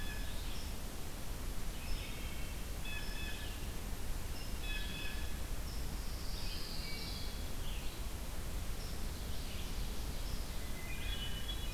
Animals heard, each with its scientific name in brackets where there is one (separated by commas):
Blue Jay (Cyanocitta cristata), Wood Thrush (Hylocichla mustelina), Red-eyed Vireo (Vireo olivaceus), unknown mammal, Hermit Thrush (Catharus guttatus), Ovenbird (Seiurus aurocapilla), Pine Warbler (Setophaga pinus)